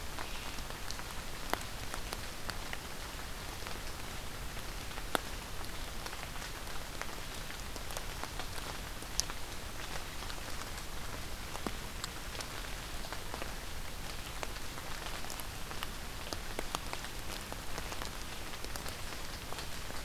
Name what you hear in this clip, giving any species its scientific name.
forest ambience